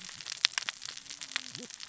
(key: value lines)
label: biophony, cascading saw
recorder: SoundTrap 600 or HydroMoth